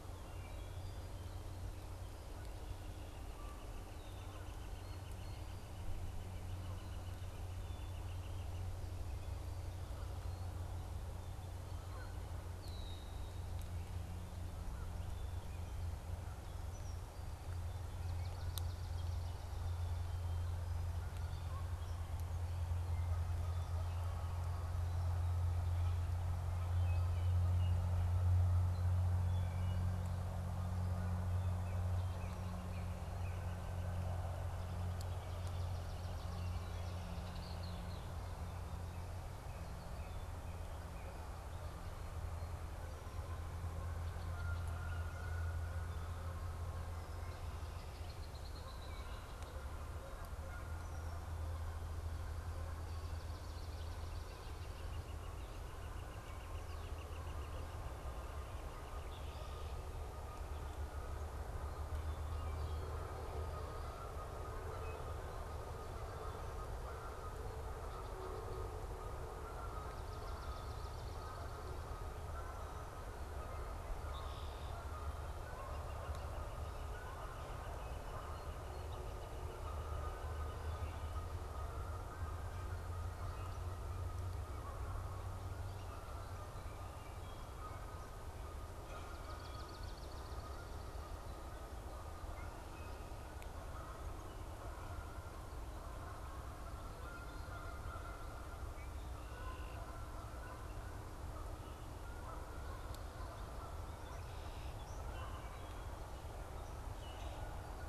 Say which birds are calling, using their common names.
Wood Thrush, Northern Flicker, Canada Goose, Red-winged Blackbird, Swamp Sparrow, Northern Cardinal, Common Grackle